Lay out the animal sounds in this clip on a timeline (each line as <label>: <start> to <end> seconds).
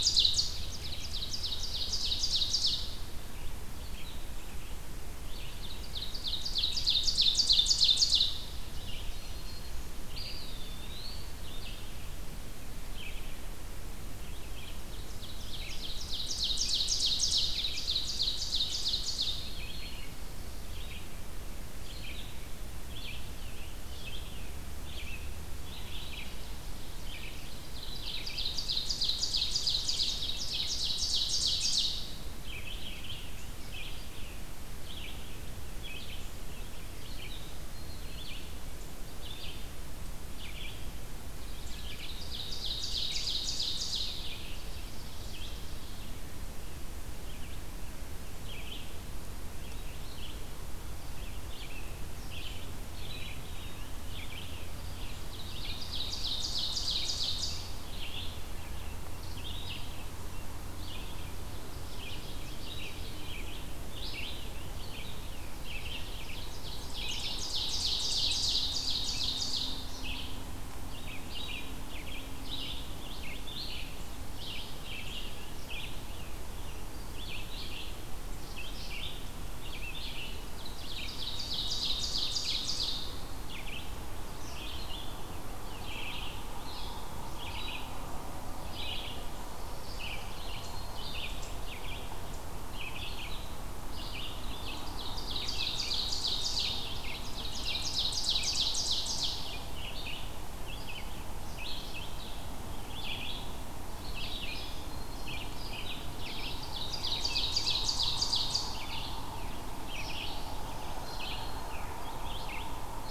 Ovenbird (Seiurus aurocapilla): 0.0 to 3.0 seconds
Red-eyed Vireo (Vireo olivaceus): 0.0 to 40.9 seconds
Ovenbird (Seiurus aurocapilla): 5.0 to 8.7 seconds
Black-throated Green Warbler (Setophaga virens): 8.7 to 10.0 seconds
Eastern Wood-Pewee (Contopus virens): 10.0 to 11.4 seconds
Ovenbird (Seiurus aurocapilla): 14.7 to 19.5 seconds
Black-throated Green Warbler (Setophaga virens): 19.1 to 20.1 seconds
Black-throated Green Warbler (Setophaga virens): 25.8 to 26.6 seconds
Ovenbird (Seiurus aurocapilla): 26.0 to 31.9 seconds
Black-throated Green Warbler (Setophaga virens): 37.5 to 38.4 seconds
Ovenbird (Seiurus aurocapilla): 41.5 to 44.5 seconds
Red-eyed Vireo (Vireo olivaceus): 41.7 to 98.6 seconds
Black-throated Green Warbler (Setophaga virens): 52.5 to 53.8 seconds
Ovenbird (Seiurus aurocapilla): 55.3 to 57.8 seconds
Ovenbird (Seiurus aurocapilla): 61.6 to 63.3 seconds
Scarlet Tanager (Piranga olivacea): 64.0 to 66.1 seconds
Ovenbird (Seiurus aurocapilla): 66.2 to 69.9 seconds
Ovenbird (Seiurus aurocapilla): 80.7 to 83.2 seconds
Black-throated Green Warbler (Setophaga virens): 89.6 to 91.1 seconds
Ovenbird (Seiurus aurocapilla): 94.7 to 99.8 seconds
Red-eyed Vireo (Vireo olivaceus): 99.6 to 113.1 seconds
Black-throated Green Warbler (Setophaga virens): 104.0 to 105.8 seconds
Ovenbird (Seiurus aurocapilla): 106.4 to 109.0 seconds
Black-throated Green Warbler (Setophaga virens): 110.0 to 112.0 seconds